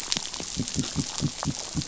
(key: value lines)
label: biophony
recorder: SoundTrap 500